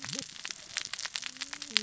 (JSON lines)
{"label": "biophony, cascading saw", "recorder": "SoundTrap 600 or HydroMoth"}